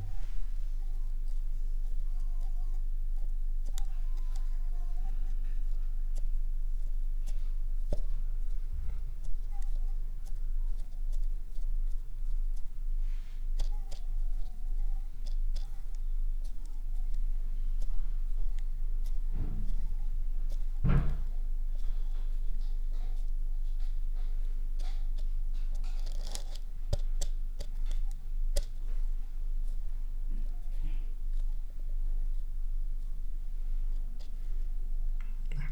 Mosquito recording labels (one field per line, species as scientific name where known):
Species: Anopheles arabiensis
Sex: female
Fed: unfed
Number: one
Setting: cup